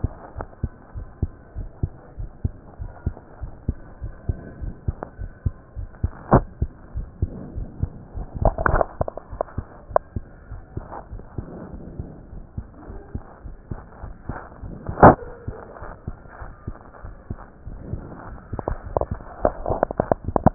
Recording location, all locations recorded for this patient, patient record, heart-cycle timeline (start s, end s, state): aortic valve (AV)
aortic valve (AV)+pulmonary valve (PV)+tricuspid valve (TV)+mitral valve (MV)
#Age: Child
#Sex: Male
#Height: 148.0 cm
#Weight: 35.8 kg
#Pregnancy status: False
#Murmur: Absent
#Murmur locations: nan
#Most audible location: nan
#Systolic murmur timing: nan
#Systolic murmur shape: nan
#Systolic murmur grading: nan
#Systolic murmur pitch: nan
#Systolic murmur quality: nan
#Diastolic murmur timing: nan
#Diastolic murmur shape: nan
#Diastolic murmur grading: nan
#Diastolic murmur pitch: nan
#Diastolic murmur quality: nan
#Outcome: Abnormal
#Campaign: 2015 screening campaign
0.00	0.34	unannotated
0.34	0.48	S1
0.48	0.62	systole
0.62	0.72	S2
0.72	0.94	diastole
0.94	1.06	S1
1.06	1.18	systole
1.18	1.32	S2
1.32	1.56	diastole
1.56	1.70	S1
1.70	1.78	systole
1.78	1.92	S2
1.92	2.18	diastole
2.18	2.30	S1
2.30	2.40	systole
2.40	2.54	S2
2.54	2.80	diastole
2.80	2.92	S1
2.92	3.02	systole
3.02	3.16	S2
3.16	3.42	diastole
3.42	3.52	S1
3.52	3.64	systole
3.64	3.78	S2
3.78	4.02	diastole
4.02	4.14	S1
4.14	4.24	systole
4.24	4.40	S2
4.40	4.60	diastole
4.60	4.74	S1
4.74	4.84	systole
4.84	4.98	S2
4.98	5.20	diastole
5.20	5.32	S1
5.32	5.42	systole
5.42	5.56	S2
5.56	5.76	diastole
5.76	5.88	S1
5.88	6.00	systole
6.00	6.14	S2
6.14	6.32	diastole
6.32	6.46	S1
6.46	6.58	systole
6.58	6.72	S2
6.72	6.94	diastole
6.94	7.08	S1
7.08	7.18	systole
7.18	7.32	S2
7.32	7.54	diastole
7.54	7.68	S1
7.68	7.80	systole
7.80	7.94	S2
7.94	8.16	diastole
8.16	8.28	S1
8.28	8.40	systole
8.40	8.49	S2
8.49	9.30	unannotated
9.30	9.40	S1
9.40	9.54	systole
9.54	9.66	S2
9.66	9.90	diastole
9.90	10.00	S1
10.00	10.12	systole
10.12	10.26	S2
10.26	10.50	diastole
10.50	10.62	S1
10.62	10.76	systole
10.76	10.83	S2
10.83	11.10	diastole
11.10	11.22	S1
11.22	11.34	systole
11.34	11.46	S2
11.46	11.72	diastole
11.72	11.84	S1
11.84	11.98	systole
11.98	12.08	S2
12.08	12.34	diastole
12.34	12.44	S1
12.44	12.56	systole
12.56	12.66	S2
12.66	12.88	diastole
12.88	12.98	S1
12.98	13.12	systole
13.12	13.22	S2
13.22	13.46	diastole
13.46	13.56	S1
13.56	13.70	systole
13.70	13.79	S2
13.79	14.02	diastole
14.02	14.14	S1
14.14	14.28	systole
14.28	14.38	S2
14.38	14.62	diastole
14.62	14.72	S1
14.72	20.54	unannotated